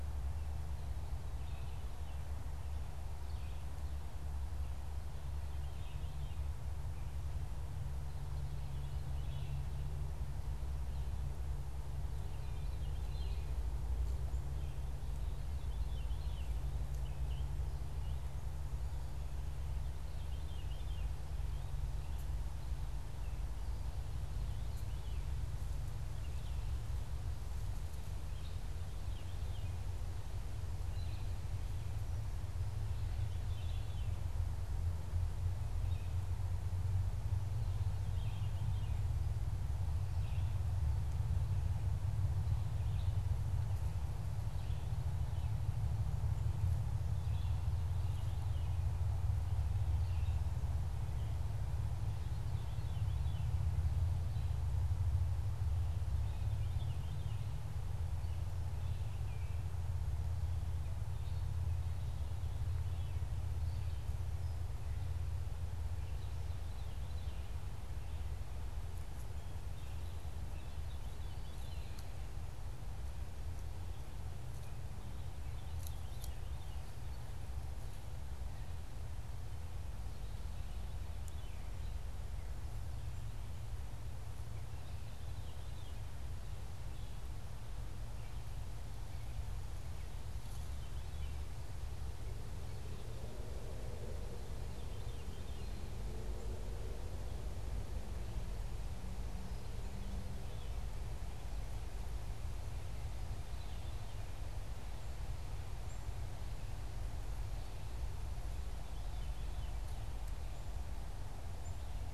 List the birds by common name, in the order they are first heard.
Red-eyed Vireo, Veery, Black-capped Chickadee